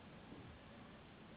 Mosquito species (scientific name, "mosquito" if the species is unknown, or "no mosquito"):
Anopheles gambiae s.s.